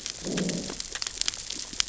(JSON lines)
{"label": "biophony, growl", "recorder": "SoundTrap 600 or HydroMoth"}